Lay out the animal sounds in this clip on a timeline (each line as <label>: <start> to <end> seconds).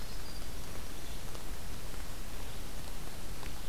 Winter Wren (Troglodytes hiemalis): 0.0 to 1.3 seconds
Red-eyed Vireo (Vireo olivaceus): 0.0 to 3.7 seconds